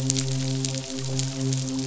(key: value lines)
label: biophony, midshipman
recorder: SoundTrap 500